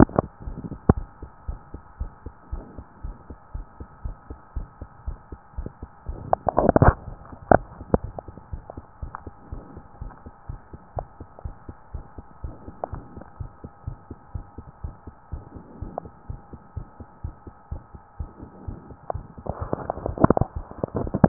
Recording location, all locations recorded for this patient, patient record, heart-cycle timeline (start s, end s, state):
pulmonary valve (PV)
aortic valve (AV)+pulmonary valve (PV)+tricuspid valve (TV)+mitral valve (MV)
#Age: nan
#Sex: Female
#Height: nan
#Weight: nan
#Pregnancy status: True
#Murmur: Present
#Murmur locations: pulmonary valve (PV)+tricuspid valve (TV)
#Most audible location: pulmonary valve (PV)
#Systolic murmur timing: Holosystolic
#Systolic murmur shape: Plateau
#Systolic murmur grading: I/VI
#Systolic murmur pitch: Low
#Systolic murmur quality: Harsh
#Diastolic murmur timing: nan
#Diastolic murmur shape: nan
#Diastolic murmur grading: nan
#Diastolic murmur pitch: nan
#Diastolic murmur quality: nan
#Outcome: Normal
#Campaign: 2015 screening campaign
0.00	7.48	unannotated
7.48	7.66	S1
7.66	7.78	systole
7.78	7.88	S2
7.88	8.02	diastole
8.02	8.16	S1
8.16	8.26	systole
8.26	8.36	S2
8.36	8.50	diastole
8.50	8.64	S1
8.64	8.74	systole
8.74	8.84	S2
8.84	9.00	diastole
9.00	9.14	S1
9.14	9.26	systole
9.26	9.34	S2
9.34	9.50	diastole
9.50	9.64	S1
9.64	9.76	systole
9.76	9.84	S2
9.84	10.00	diastole
10.00	10.14	S1
10.14	10.26	systole
10.26	10.32	S2
10.32	10.48	diastole
10.48	10.60	S1
10.60	10.72	systole
10.72	10.80	S2
10.80	10.94	diastole
10.94	11.08	S1
11.08	11.20	systole
11.20	11.28	S2
11.28	11.44	diastole
11.44	11.56	S1
11.56	11.68	systole
11.68	11.76	S2
11.76	11.92	diastole
11.92	12.06	S1
12.06	12.18	systole
12.18	12.24	S2
12.24	12.40	diastole
12.40	12.56	S1
12.56	12.66	systole
12.66	12.76	S2
12.76	12.90	diastole
12.90	13.04	S1
13.04	13.16	systole
13.16	13.26	S2
13.26	13.40	diastole
13.40	13.52	S1
13.52	13.62	systole
13.62	13.70	S2
13.70	13.84	diastole
13.84	13.98	S1
13.98	14.08	systole
14.08	14.16	S2
14.16	14.34	diastole
14.34	14.46	S1
14.46	14.58	systole
14.58	14.66	S2
14.66	14.82	diastole
14.82	14.96	S1
14.96	15.06	systole
15.06	15.14	S2
15.14	15.31	diastole
15.31	15.44	S1
15.44	15.54	systole
15.54	15.66	S2
15.66	15.80	diastole
15.80	15.94	S1
15.94	16.02	systole
16.02	16.12	S2
16.12	16.28	diastole
16.28	16.40	S1
16.40	16.51	systole
16.51	16.60	S2
16.60	16.76	diastole
16.76	16.88	S1
16.88	16.98	systole
16.98	17.06	S2
17.06	17.20	diastole
17.20	17.34	S1
17.34	17.45	systole
17.45	17.52	S2
17.52	17.68	diastole
17.68	17.84	S1
17.84	17.92	systole
17.92	18.00	S2
18.00	18.16	diastole
18.16	18.29	S1
18.29	18.40	systole
18.40	18.49	S2
18.49	18.66	diastole
18.66	18.80	S1
18.80	18.90	systole
18.90	18.96	S2
18.96	21.28	unannotated